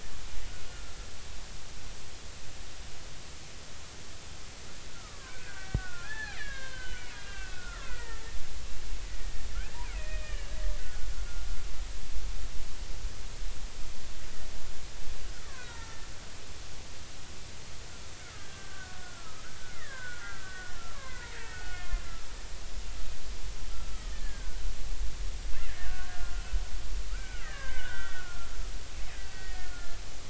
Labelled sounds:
0.7	1.0	killer whale, Bigg's (transient), 1.3 to 1.4 kHz
4.9	8.2	killer whale, Bigg's (transient), 0.80 to 4.3 kHz
9.8	11.1	killer whale, Bigg's (transient), 1.4 to 2.9 kHz
15.3	16.0	killer whale, Bigg's (transient), 0.83 to 1.9 kHz
17.9	22.0	killer whale, Bigg's (transient), 0.90 to 2.6 kHz
24.1	24.6	killer whale, Bigg's (transient), 1.4 to 1.9 kHz
25.5	26.4	killer whale, Bigg's (transient), 1.1 to 2.2 kHz
27.1	28.5	killer whale, Bigg's (transient), 1.2 to 3.5 kHz
29.3	30.0	killer whale, Bigg's (transient), 1.3 to 2.0 kHz

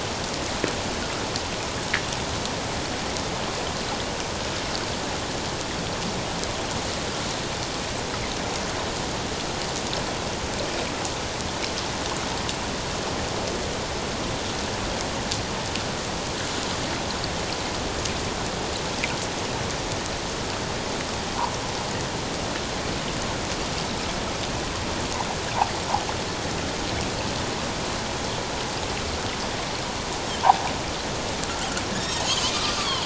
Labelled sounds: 32.0	33.0	Pacific white-sided dolphin, 0.88 to 3.9 kHz

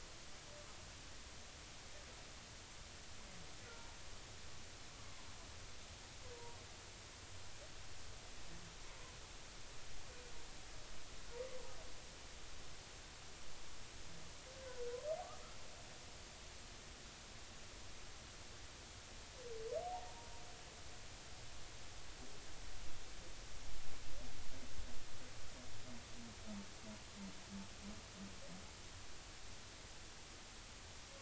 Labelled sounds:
19.8	20.1	humpback whale, 0.80 to 0.99 kHz

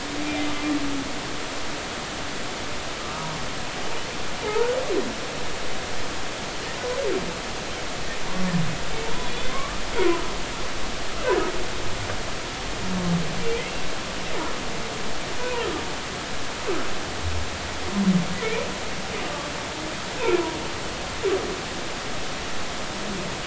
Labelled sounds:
3.0	3.3	humpback whale, 1.2 to 1.3 kHz
4.4	4.8	humpback whale, 0.80 to 1.5 kHz
9.0	9.8	humpback whale, 0.86 to 3.5 kHz

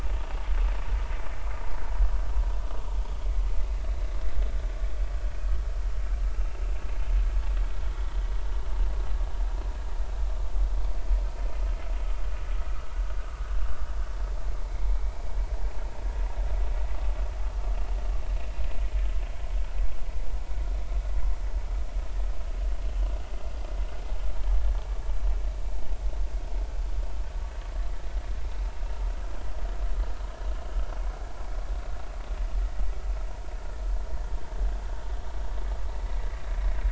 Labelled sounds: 6.3	6.6	vessel noise, 2.6 to 2.8 kHz
14.9	15.3	vessel noise, 2.1 to 2.4 kHz
19.5	19.8	vessel noise, 1.4 to 1.5 kHz

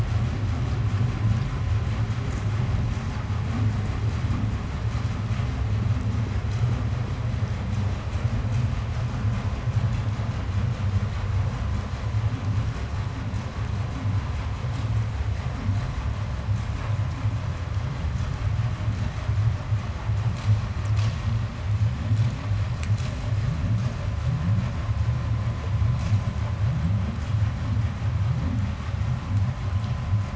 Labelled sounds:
3.1	9.1	vessel noise, 0 to 8.0 kHz

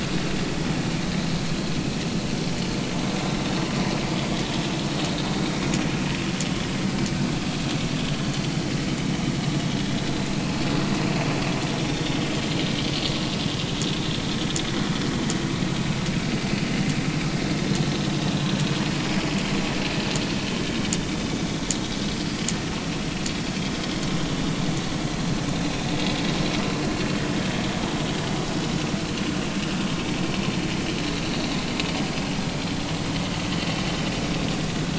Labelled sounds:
11.8	12.0	vessel noise, 3.5 to 3.7 kHz
17.7	17.9	vessel noise, 4.0 to 4.2 kHz
21.4	21.7	vessel noise, 3.2 to 3.4 kHz
25.5	25.8	vessel noise, 2.3 to 2.6 kHz
31.0	31.2	vessel noise, 3.8 to 4.1 kHz

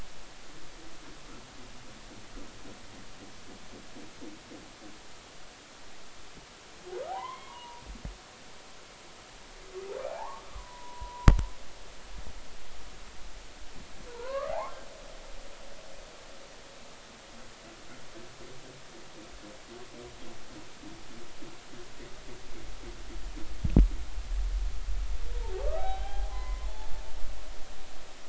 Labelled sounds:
7.1	7.8	humpback whale, 0.80 to 3.4 kHz
10.1	11.3	humpback whale, 0.80 to 1.3 kHz
14.1	14.7	humpback whale, 0.80 to 1.8 kHz
25.6	26.7	humpback whale, 0.80 to 3.9 kHz

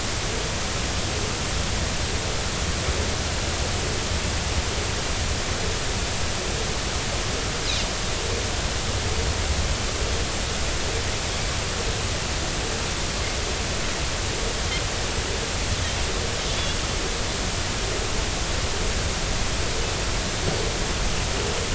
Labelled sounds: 16.5	16.8	Pacific white-sided dolphin, 3.3 to 3.5 kHz

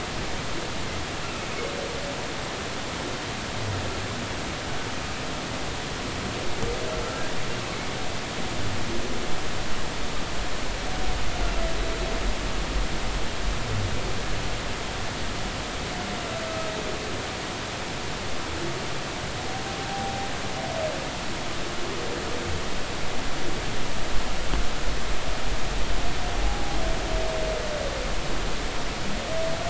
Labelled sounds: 26.4	26.8	humpback whale, 0.80 to 0.86 kHz

